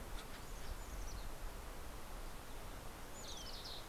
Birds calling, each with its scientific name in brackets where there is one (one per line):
Mountain Chickadee (Poecile gambeli)
Fox Sparrow (Passerella iliaca)